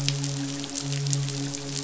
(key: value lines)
label: biophony, midshipman
recorder: SoundTrap 500